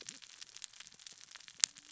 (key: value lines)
label: biophony, cascading saw
recorder: SoundTrap 600 or HydroMoth